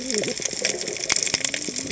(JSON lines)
{"label": "biophony, cascading saw", "recorder": "HydroMoth"}